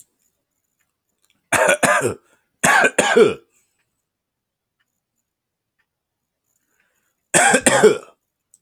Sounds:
Cough